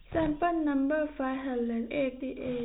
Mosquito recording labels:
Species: no mosquito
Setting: cup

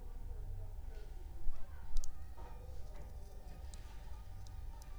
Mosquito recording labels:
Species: Anopheles funestus s.s.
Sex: female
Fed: unfed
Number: one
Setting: cup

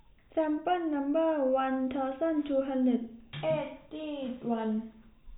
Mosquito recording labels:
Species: no mosquito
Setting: cup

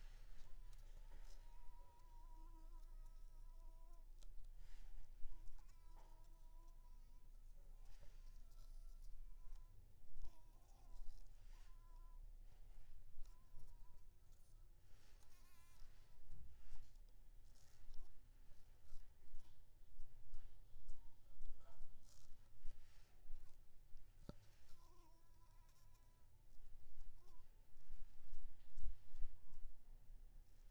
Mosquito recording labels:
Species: Anopheles coustani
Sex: female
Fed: unfed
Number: one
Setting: cup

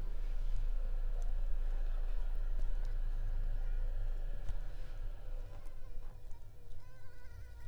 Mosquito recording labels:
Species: Anopheles arabiensis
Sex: female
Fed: unfed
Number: one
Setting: cup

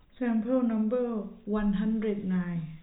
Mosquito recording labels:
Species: no mosquito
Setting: cup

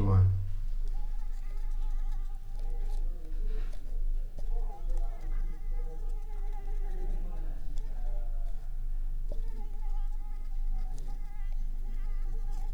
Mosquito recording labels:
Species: Anopheles arabiensis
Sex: female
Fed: unfed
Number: one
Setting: cup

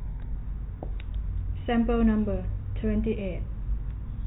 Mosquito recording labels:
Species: no mosquito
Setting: cup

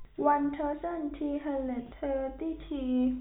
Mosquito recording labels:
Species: no mosquito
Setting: cup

